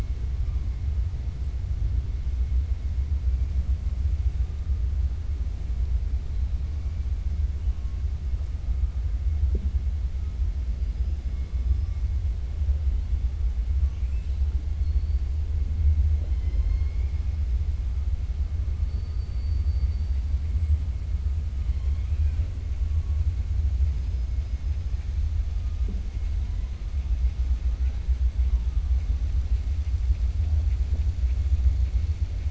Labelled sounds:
13.8	14.4	killer whale, 1.4 to 3.8 kHz
18.8	20.2	killer whale, 4.4 to 5.2 kHz
21.6	22.5	killer whale, 0.57 to 4.2 kHz

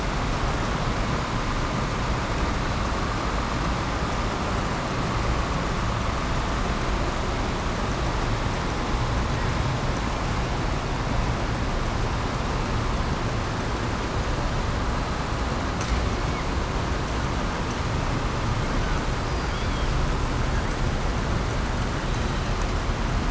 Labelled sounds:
19.2	19.9	killer whale, southern resident, 2.3 to 5.2 kHz

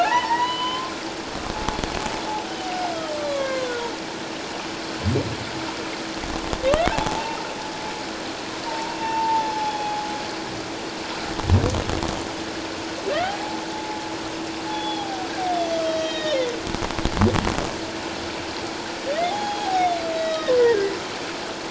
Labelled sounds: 0.0	0.9	humpback whale, 0.78 to 4.1 kHz
2.7	3.7	humpback whale, 1.0 to 5.2 kHz
6.9	7.4	humpback whale, 0.81 to 0.97 kHz
8.7	10.1	humpback whale, 0.78 to 3.4 kHz
13.2	14.0	humpback whale, 0.78 to 0.91 kHz
14.7	15.3	humpback whale, 0.78 to 3.5 kHz
15.8	16.4	humpback whale, 1.8 to 7.0 kHz
19.2	20.5	humpback whale, 0.78 to 3.9 kHz

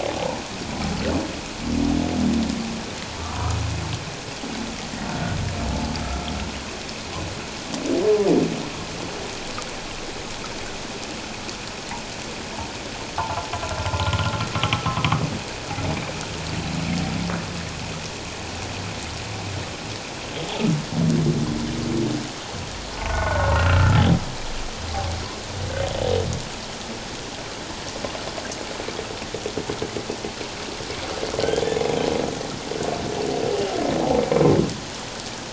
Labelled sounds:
3.2	3.6	humpback whale, 0.94 to 1.3 kHz
5.1	5.4	humpback whale, 1.4 to 1.5 kHz
13.2	13.5	humpback whale, 0.78 to 1.5 kHz
14.0	15.0	humpback whale, 1.2 to 1.5 kHz
23.1	24.0	humpback whale, 1.2 to 1.6 kHz

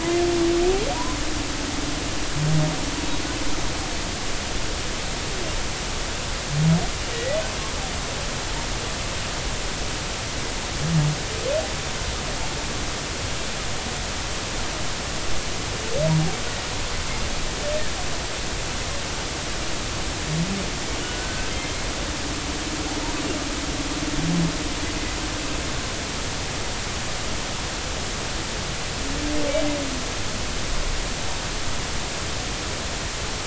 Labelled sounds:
7.1	7.4	humpback whale, 1.8 to 2.0 kHz
21.0	21.5	humpback whale, 1.4 to 1.6 kHz

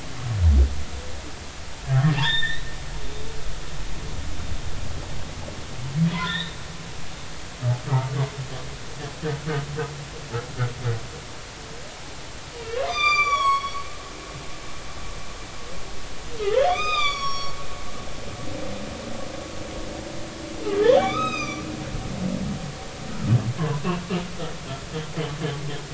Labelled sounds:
1.9	2.7	humpback whale, 1.4 to 4.0 kHz
6.1	6.6	humpback whale, 0.93 to 4.1 kHz
8.9	9.1	humpback whale, 1.1 to 1.3 kHz
12.5	14.8	humpback whale, 0.96 to 7.2 kHz
16.5	17.5	humpback whale, 0.93 to 7.3 kHz
20.8	21.6	humpback whale, 1.1 to 6.4 kHz

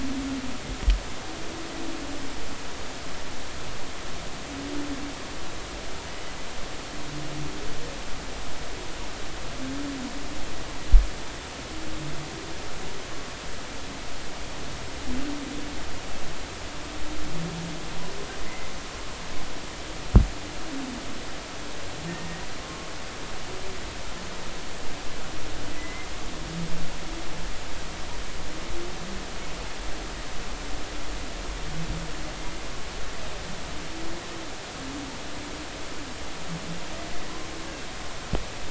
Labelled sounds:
18.4	18.7	humpback whale, 2.0 to 2.2 kHz
22.1	22.9	humpback whale, 1.0 to 1.9 kHz
25.7	26.1	humpback whale, 1.9 to 2.2 kHz

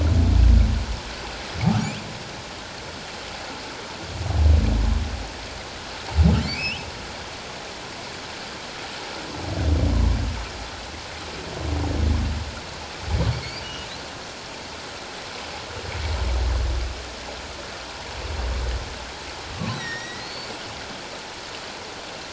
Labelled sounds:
6.4	6.9	humpback whale, 2.0 to 3.3 kHz
13.6	13.9	humpback whale, 2.8 to 3.0 kHz
19.7	20.5	humpback whale, 1.8 to 6.1 kHz

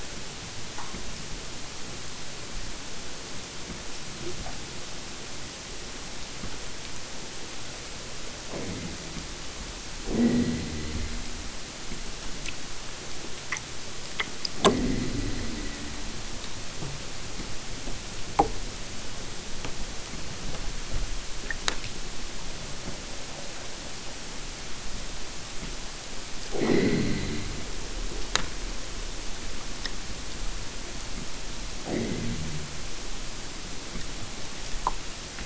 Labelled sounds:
8.5	9.3	killer whale, southern Alaska resident, 0 to 2.7 kHz
10.1	11.3	killer whale, southern Alaska resident, 0 to 4.8 kHz
14.5	16.2	killer whale, southern Alaska resident, 0 to 5.0 kHz
26.5	27.5	killer whale, southern Alaska resident, 0 to 4.8 kHz
31.8	32.7	killer whale, southern Alaska resident, 0 to 4.1 kHz

